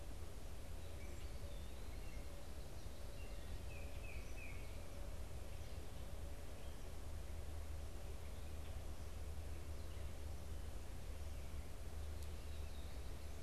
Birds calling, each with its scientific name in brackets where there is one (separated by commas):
unidentified bird, Tufted Titmouse (Baeolophus bicolor)